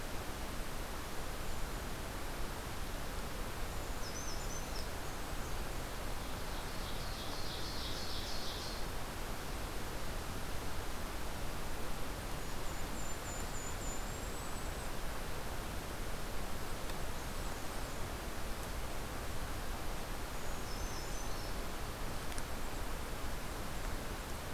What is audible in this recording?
Brown Creeper, Blackburnian Warbler, Ovenbird, Golden-crowned Kinglet